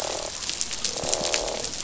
{"label": "biophony, croak", "recorder": "SoundTrap 500"}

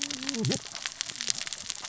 {"label": "biophony, cascading saw", "recorder": "SoundTrap 600 or HydroMoth"}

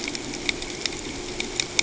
{"label": "ambient", "recorder": "HydroMoth"}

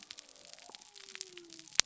{"label": "biophony", "recorder": "SoundTrap 300"}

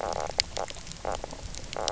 {"label": "biophony, knock croak", "recorder": "SoundTrap 300"}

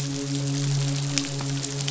{"label": "biophony, midshipman", "recorder": "SoundTrap 500"}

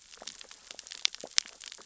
{"label": "biophony, sea urchins (Echinidae)", "recorder": "SoundTrap 600 or HydroMoth"}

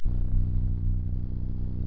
{"label": "anthrophony, boat engine", "recorder": "SoundTrap 300"}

